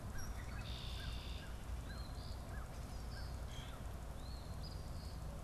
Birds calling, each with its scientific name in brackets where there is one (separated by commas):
Red-winged Blackbird (Agelaius phoeniceus), Eastern Phoebe (Sayornis phoebe), American Crow (Corvus brachyrhynchos)